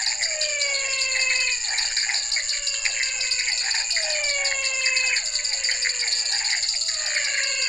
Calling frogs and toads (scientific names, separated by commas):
Dendropsophus nanus, Leptodactylus podicipinus, Physalaemus albonotatus, Physalaemus cuvieri, Pithecopus azureus